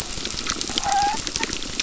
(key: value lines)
label: biophony, crackle
recorder: SoundTrap 600